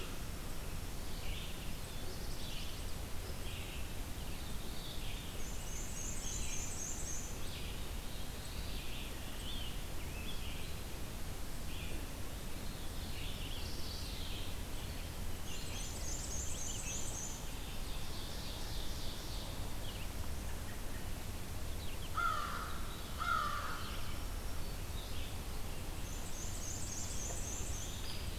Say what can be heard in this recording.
Red-eyed Vireo, Chestnut-sided Warbler, Black-and-white Warbler, Black-throated Blue Warbler, Scarlet Tanager, Veery, Mourning Warbler, Ovenbird, American Crow, Black-throated Green Warbler, Hairy Woodpecker